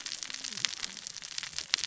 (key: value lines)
label: biophony, cascading saw
recorder: SoundTrap 600 or HydroMoth